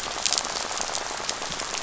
{"label": "biophony, rattle", "recorder": "SoundTrap 500"}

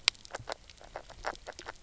{"label": "biophony, knock croak", "recorder": "SoundTrap 300"}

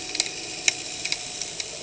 {"label": "anthrophony, boat engine", "recorder": "HydroMoth"}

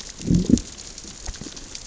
{"label": "biophony, growl", "recorder": "SoundTrap 600 or HydroMoth"}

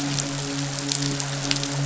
{"label": "biophony, midshipman", "recorder": "SoundTrap 500"}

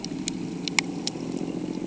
{"label": "anthrophony, boat engine", "recorder": "HydroMoth"}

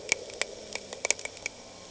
{"label": "anthrophony, boat engine", "recorder": "HydroMoth"}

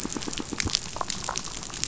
{"label": "biophony", "recorder": "SoundTrap 500"}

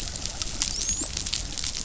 {"label": "biophony, dolphin", "recorder": "SoundTrap 500"}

